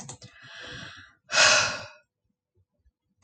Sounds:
Sigh